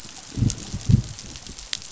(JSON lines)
{"label": "biophony, growl", "recorder": "SoundTrap 500"}